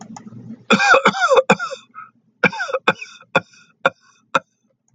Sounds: Cough